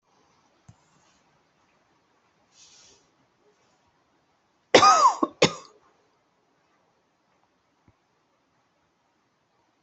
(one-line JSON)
{"expert_labels": [{"quality": "ok", "cough_type": "dry", "dyspnea": false, "wheezing": true, "stridor": false, "choking": false, "congestion": false, "nothing": false, "diagnosis": "obstructive lung disease", "severity": "mild"}], "age": 34, "gender": "female", "respiratory_condition": true, "fever_muscle_pain": true, "status": "symptomatic"}